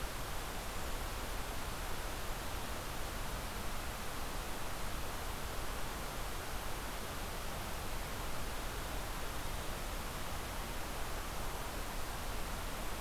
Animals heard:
forest ambience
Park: Acadia National Park